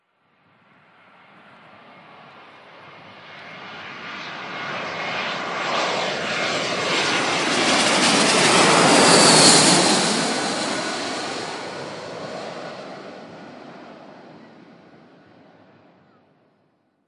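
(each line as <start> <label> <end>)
0.2 An airplane flies by, its sound progressing and then fading. 16.7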